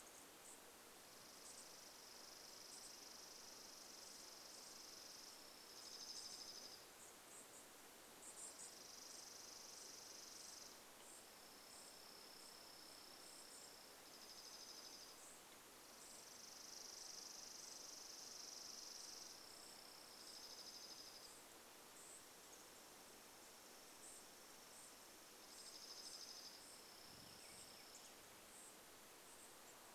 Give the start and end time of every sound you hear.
0s-10s: unidentified bird chip note
0s-28s: Chipping Sparrow song
12s-30s: unidentified bird chip note
26s-28s: unidentified sound

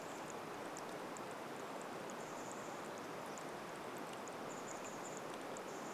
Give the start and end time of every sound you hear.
0s-2s: Brown Creeper call
0s-6s: rain
2s-6s: Chestnut-backed Chickadee call

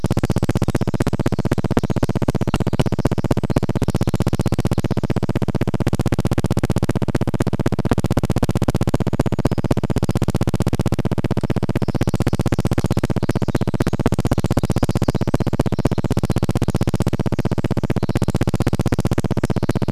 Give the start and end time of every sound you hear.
0s-4s: Pacific Wren song
0s-20s: recorder noise
8s-10s: Brown Creeper song
8s-20s: Pacific Wren song

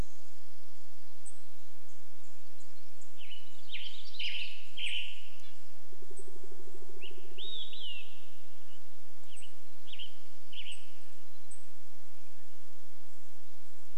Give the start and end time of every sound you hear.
0s-12s: unidentified bird chip note
2s-6s: Western Tanager song
2s-6s: warbler song
4s-6s: Red-breasted Nuthatch song
6s-8s: Olive-sided Flycatcher song
6s-8s: woodpecker drumming
8s-12s: Western Tanager song
8s-14s: Red-breasted Nuthatch song
12s-14s: Mountain Quail call

